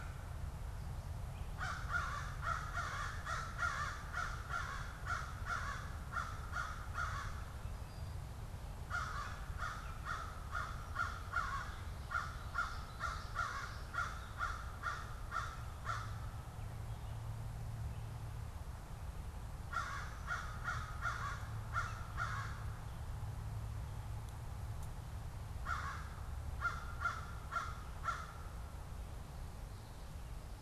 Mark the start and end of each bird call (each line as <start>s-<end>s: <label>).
0.0s-22.6s: American Crow (Corvus brachyrhynchos)
25.4s-30.6s: American Crow (Corvus brachyrhynchos)